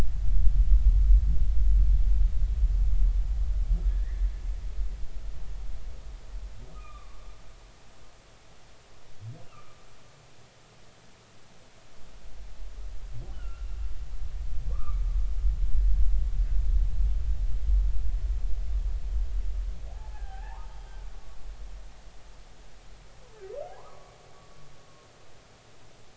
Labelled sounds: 3.9	4.3	humpback whale, 1.6 to 2.1 kHz
6.7	7.2	humpback whale, 1.1 to 3.7 kHz
9.4	9.8	humpback whale, 1.1 to 1.4 kHz
13.3	13.7	humpback whale, 1.3 to 3.1 kHz
14.7	15.0	humpback whale, 1.1 to 1.4 kHz
19.9	20.8	humpback whale, 0.80 to 1.9 kHz
23.8	24.2	humpback whale, 0.93 to 1.3 kHz

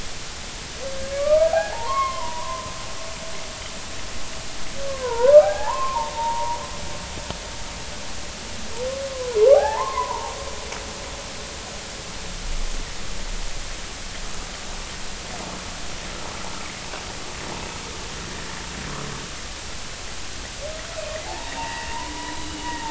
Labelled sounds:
1.1	2.7	humpback whale, 0.80 to 3.3 kHz
4.9	6.6	humpback whale, 0.80 to 1.8 kHz
9.5	10.3	humpback whale, 0.80 to 1.9 kHz
21.2	21.9	humpback whale, 0.80 to 2.0 kHz
22.3	22.8	humpback whale, 2.8 to 4.0 kHz

